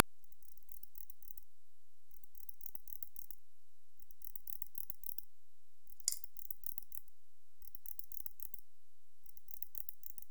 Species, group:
Barbitistes yersini
Orthoptera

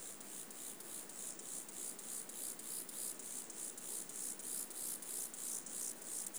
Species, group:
Chorthippus mollis
Orthoptera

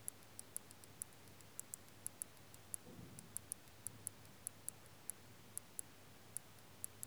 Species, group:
Canariola emarginata
Orthoptera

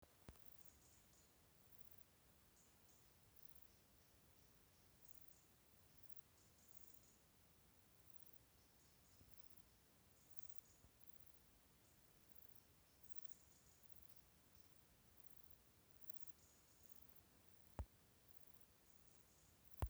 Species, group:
Pachytrachis gracilis
Orthoptera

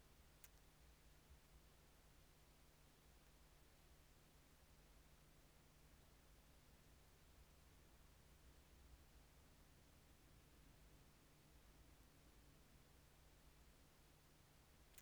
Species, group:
Leptophyes calabra
Orthoptera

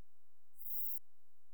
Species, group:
Eupholidoptera forcipata
Orthoptera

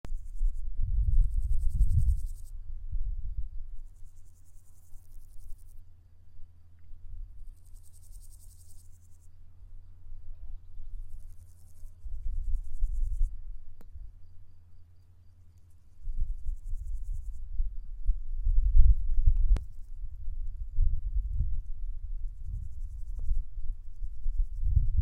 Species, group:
Pseudochorthippus parallelus
Orthoptera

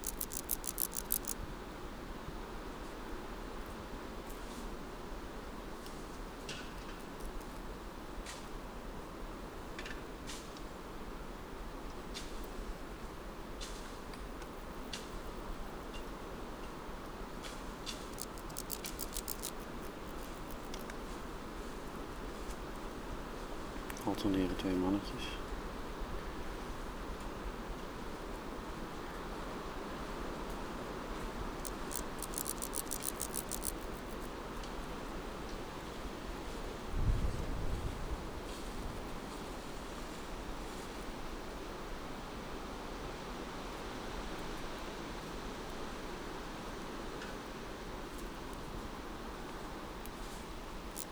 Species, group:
Dociostaurus jagoi
Orthoptera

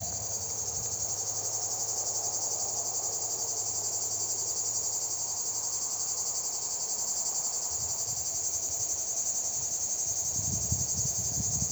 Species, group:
Lyristes plebejus
Cicadidae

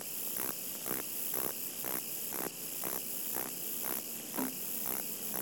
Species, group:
Metrioptera prenjica
Orthoptera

